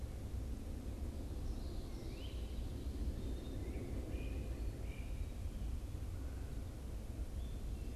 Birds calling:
Black-capped Chickadee (Poecile atricapillus), Great Crested Flycatcher (Myiarchus crinitus)

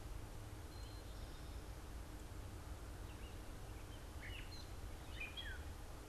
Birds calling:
Eastern Towhee (Pipilo erythrophthalmus), Red-eyed Vireo (Vireo olivaceus), Gray Catbird (Dumetella carolinensis)

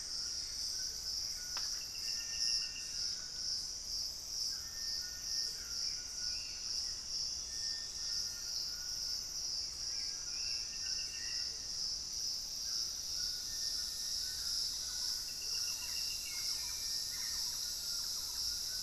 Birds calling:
Thrush-like Wren (Campylorhynchus turdinus), Gray Antbird (Cercomacra cinerascens), Little Tinamou (Crypturellus soui), Hauxwell's Thrush (Turdus hauxwelli), White-throated Toucan (Ramphastos tucanus), unidentified bird, Amazonian Motmot (Momotus momota)

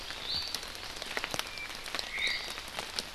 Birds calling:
Iiwi (Drepanis coccinea), Apapane (Himatione sanguinea), Omao (Myadestes obscurus)

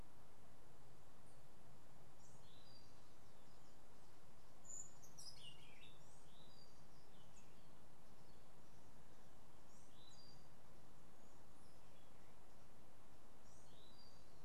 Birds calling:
Orange-billed Nightingale-Thrush (Catharus aurantiirostris)

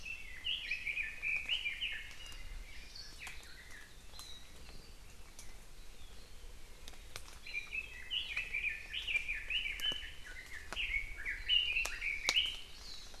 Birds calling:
Red-billed Leiothrix (Leiothrix lutea), Warbling White-eye (Zosterops japonicus), Hawaii Amakihi (Chlorodrepanis virens)

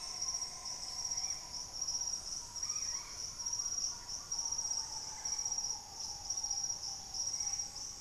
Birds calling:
White-bellied Tody-Tyrant (Hemitriccus griseipectus), Green Ibis (Mesembrinibis cayennensis)

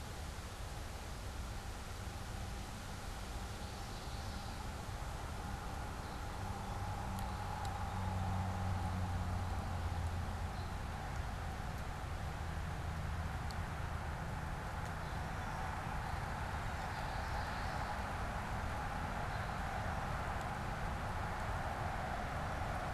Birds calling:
Common Yellowthroat (Geothlypis trichas), unidentified bird, Song Sparrow (Melospiza melodia)

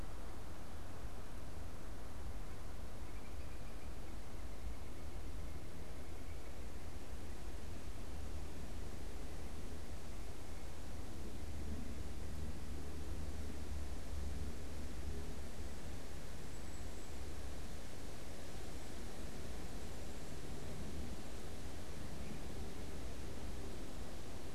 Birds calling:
Great Crested Flycatcher (Myiarchus crinitus), Cedar Waxwing (Bombycilla cedrorum)

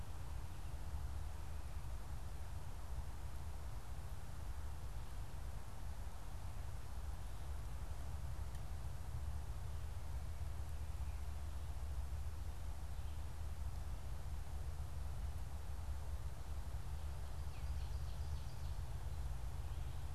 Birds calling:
Ovenbird (Seiurus aurocapilla)

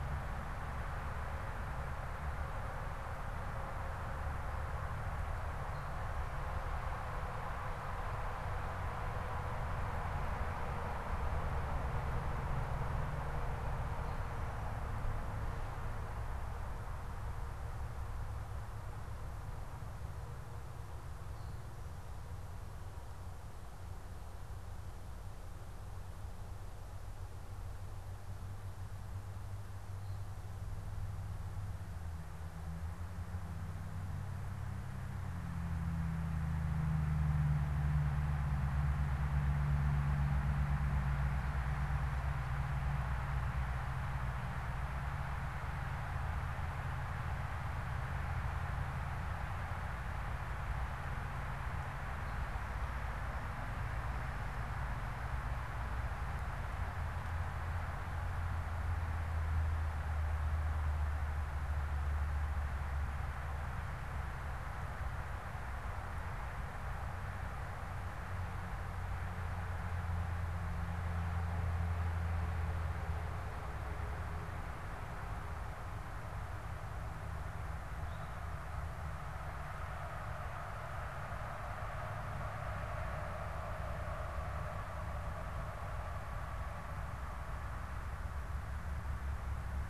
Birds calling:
Eastern Towhee (Pipilo erythrophthalmus)

